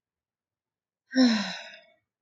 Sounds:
Sigh